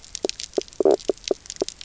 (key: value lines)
label: biophony, knock croak
recorder: SoundTrap 300